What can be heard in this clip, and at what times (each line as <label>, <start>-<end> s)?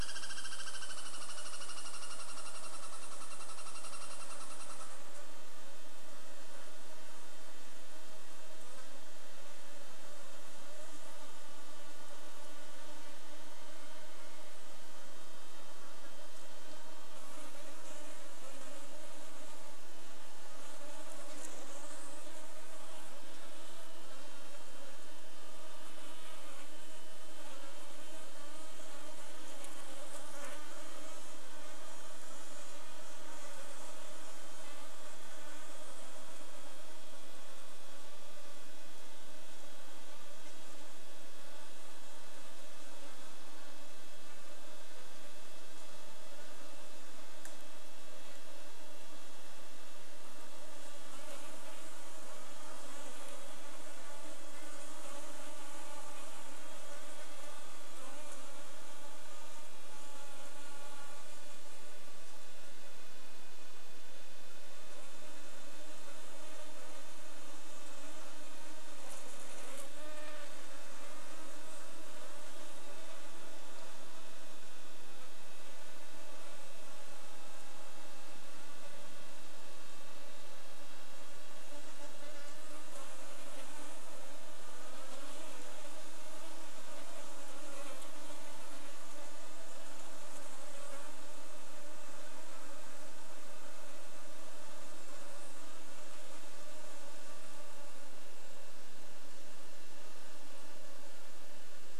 Douglas squirrel rattle, 0-6 s
insect buzz, 0-102 s
Red-breasted Nuthatch song, 34-36 s